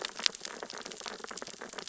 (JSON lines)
{"label": "biophony, sea urchins (Echinidae)", "recorder": "SoundTrap 600 or HydroMoth"}